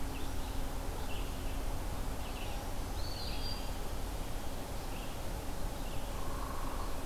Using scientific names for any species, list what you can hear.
Vireo olivaceus, Setophaga virens, Contopus virens, Dryobates villosus